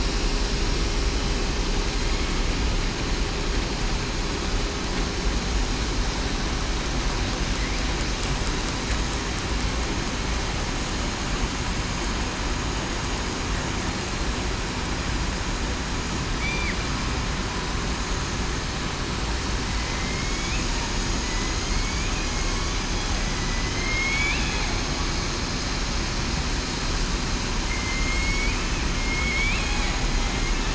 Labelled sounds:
16.4	16.8	killer whale, southern resident, 1.9 to 2.4 kHz
19.8	20.6	killer whale, southern resident, 2.0 to 2.6 kHz
21.2	22.1	killer whale, southern resident, 2.0 to 2.5 kHz
23.7	24.4	killer whale, southern resident, 2.0 to 2.7 kHz
27.7	28.5	killer whale, southern resident, 2.0 to 7.7 kHz
29.0	29.6	killer whale, southern resident, 2.1 to 2.7 kHz

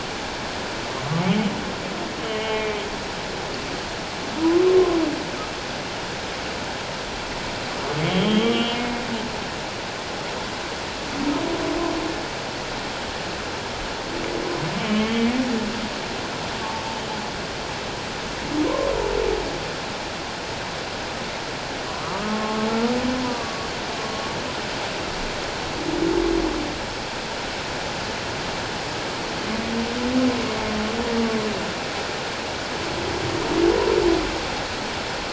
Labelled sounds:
2.2	2.8	humpback whale, 2.1 to 3.2 kHz
8.1	8.9	humpback whale, 1.1 to 3.4 kHz
14.8	15.3	humpback whale, 1.0 to 3.3 kHz
18.6	18.9	humpback whale, 0.91 to 1.1 kHz
21.9	22.7	humpback whale, 0.94 to 1.4 kHz
23.3	23.7	humpback whale, 1.1 to 1.2 kHz

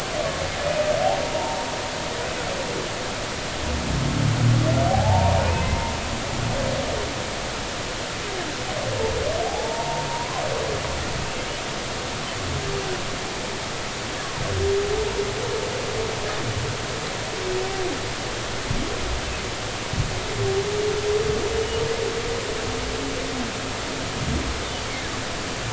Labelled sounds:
1.0	1.7	humpback whale, 0.80 to 1.0 kHz
4.9	5.9	humpback whale, 0.80 to 2.6 kHz
9.5	10.4	humpback whale, 0.80 to 1.1 kHz

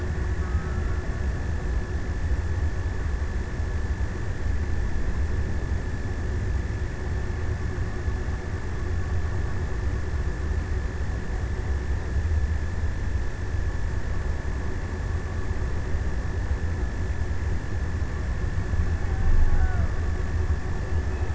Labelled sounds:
0.1	1.7	killer whale, Bigg's (transient), 0.70 to 1.7 kHz
18.6	20.4	killer whale, Bigg's (transient), 0.31 to 1.6 kHz

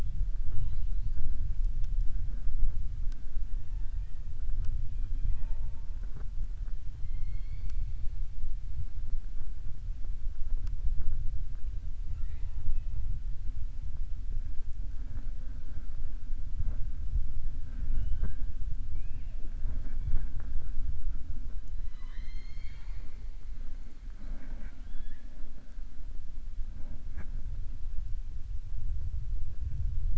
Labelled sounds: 3.6	4.2	killer whale, southern resident, 0.87 to 2.8 kHz
6.9	7.8	killer whale, southern resident, 1.2 to 4.7 kHz
18.8	19.4	killer whale, southern resident, 1.7 to 2.9 kHz
21.8	23.2	killer whale, southern resident, 0.97 to 6.9 kHz

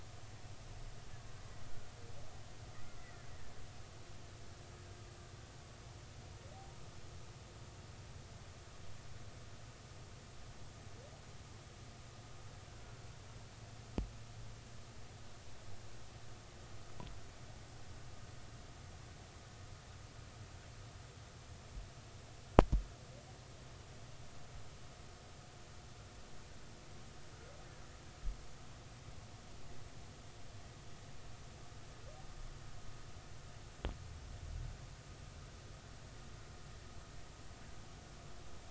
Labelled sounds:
3.0	3.3	killer whale, Bigg's (transient), 1.6 to 2.1 kHz

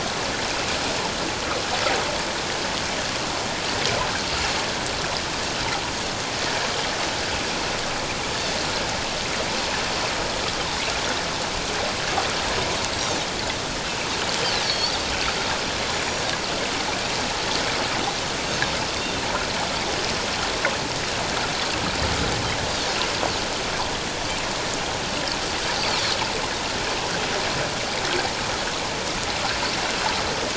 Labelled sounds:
14.6	15.0	Pacific white-sided dolphin, 3.2 to 4.8 kHz
15.9	16.2	Pacific white-sided dolphin, 6.8 to 7.0 kHz
18.9	19.2	Pacific white-sided dolphin, 3.5 to 3.8 kHz

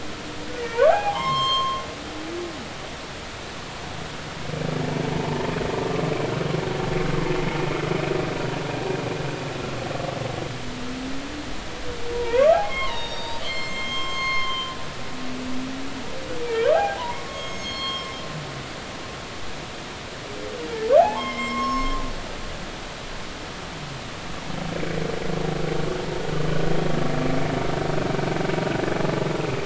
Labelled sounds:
0.6	1.8	humpback whale, 0.80 to 7.5 kHz
5.1	5.5	humpback whale, 0.83 to 1.0 kHz
12.1	14.7	humpback whale, 0.80 to 7.5 kHz
16.4	18.1	humpback whale, 0.80 to 7.6 kHz
21.0	22.0	humpback whale, 0.80 to 7.6 kHz
24.7	25.0	humpback whale, 2.2 to 2.4 kHz
28.9	29.2	humpback whale, 0.80 to 0.90 kHz

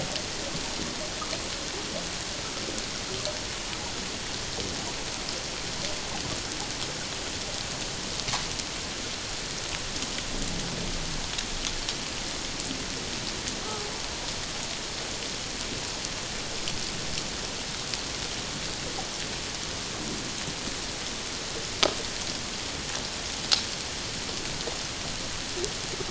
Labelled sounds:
13.7	13.9	humpback whale, 0.78 to 0.91 kHz

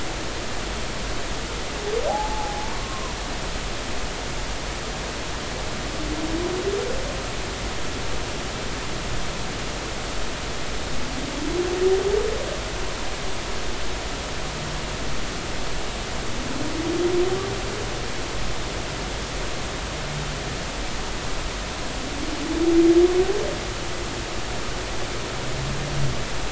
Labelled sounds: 2.1	3.1	humpback whale, 0.80 to 1.1 kHz

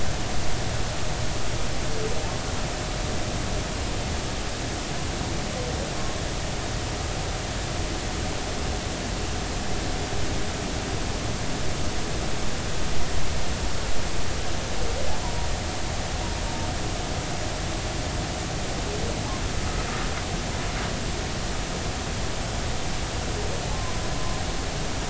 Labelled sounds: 23.7	24.4	humpback whale, 0.96 to 1.1 kHz

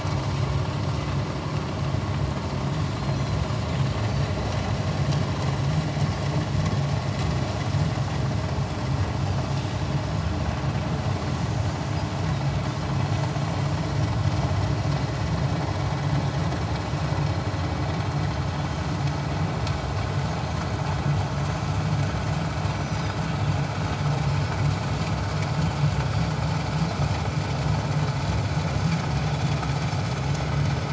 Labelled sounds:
3.0	3.4	Pacific white-sided dolphin, 4.0 to 4.3 kHz
9.5	9.8	Pacific white-sided dolphin, 3.6 to 3.8 kHz
22.7	23.2	Pacific white-sided dolphin, 4.8 to 6.1 kHz

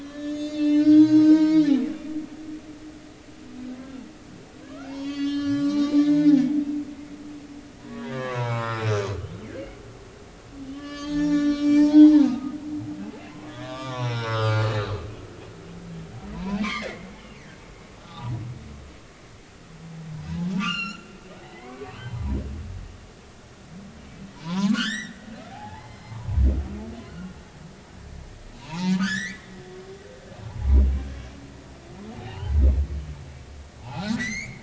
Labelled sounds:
0.0	1.9	humpback whale, 0.90 to 7.6 kHz
4.6	6.4	humpback whale, 0.80 to 7.8 kHz
7.1	8.9	humpback whale, 0.80 to 1.9 kHz
10.6	12.5	humpback whale, 0.80 to 7.8 kHz
13.5	14.9	humpback whale, 0.90 to 5.9 kHz
16.3	17.1	humpback whale, 0.86 to 4.4 kHz
18.0	18.4	humpback whale, 0.80 to 1.3 kHz
20.5	22.0	humpback whale, 0.96 to 7.2 kHz
24.3	25.2	humpback whale, 0.83 to 6.0 kHz
25.5	26.2	humpback whale, 0.80 to 4.3 kHz
28.6	29.4	humpback whale, 0.80 to 4.1 kHz
30.1	30.3	humpback whale, 5.1 to 6.5 kHz
32.1	32.5	humpback whale, 0.80 to 3.1 kHz
33.8	34.6	humpback whale, 0.80 to 7.1 kHz

